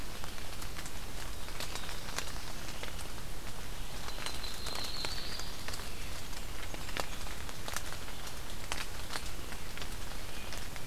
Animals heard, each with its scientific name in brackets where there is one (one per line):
Yellow-rumped Warbler (Setophaga coronata)
Black-throated Blue Warbler (Setophaga caerulescens)